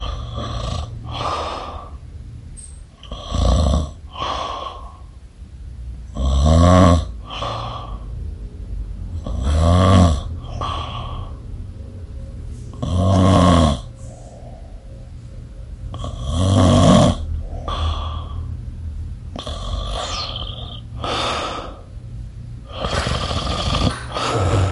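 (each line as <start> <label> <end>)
0.0 A man snores and breathes through his mouth at regular intervals. 24.7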